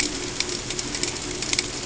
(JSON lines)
{"label": "ambient", "recorder": "HydroMoth"}